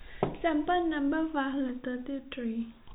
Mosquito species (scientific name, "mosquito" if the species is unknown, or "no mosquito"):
no mosquito